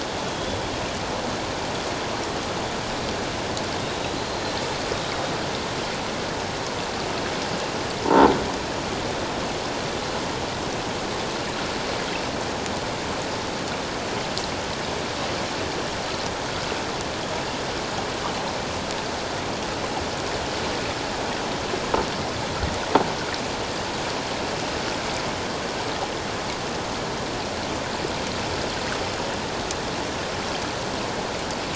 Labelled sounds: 0.2	0.6	killer whale, 3.2 to 3.5 kHz
8.0	8.3	croaking sound likely from a nearby submerged object, 0.78 to 1.0 kHz

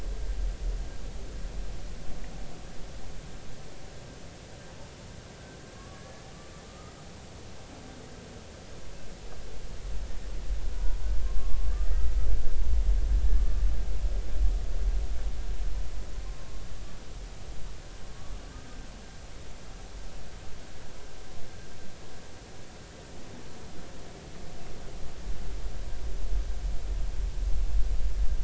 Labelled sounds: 5.8	6.9	humpback whale, 1.1 to 1.8 kHz
11.2	12.1	humpback whale, 1.0 to 2.0 kHz
13.4	13.6	humpback whale, 1.1 to 1.2 kHz

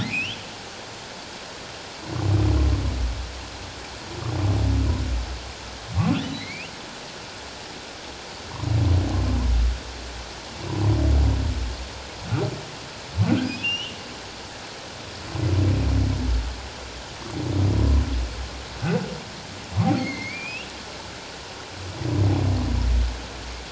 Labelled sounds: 0.0	0.4	humpback whale, 1.7 to 3.5 kHz
6.3	6.7	humpback whale, 1.9 to 3.1 kHz
13.5	14.0	humpback whale, 2.4 to 5.8 kHz
20.0	20.7	humpback whale, 2.0 to 2.9 kHz

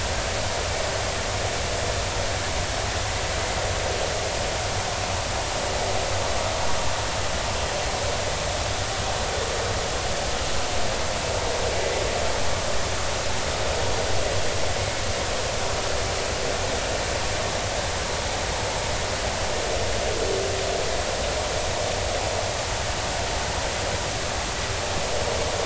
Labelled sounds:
14.8	15.0	vessel noise, 2.1 to 2.2 kHz

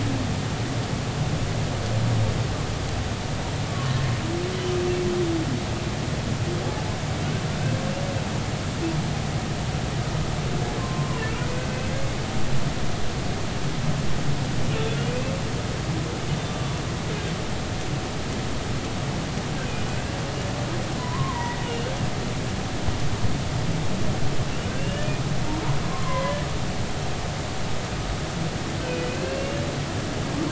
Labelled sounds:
7.5	7.7	humpback whale, 1.3 to 1.6 kHz
10.8	11.8	humpback whale, 0.96 to 2.4 kHz
16.5	16.8	humpback whale, 1.1 to 1.2 kHz
19.9	21.9	humpback whale, 0.90 to 3.0 kHz
24.7	25.1	humpback whale, 1.5 to 3.0 kHz
25.9	26.4	humpback whale, 0.96 to 2.2 kHz
28.8	29.6	humpback whale, 2.4 to 2.9 kHz

